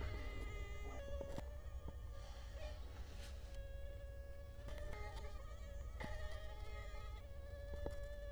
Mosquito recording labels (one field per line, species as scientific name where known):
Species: Culex quinquefasciatus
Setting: cup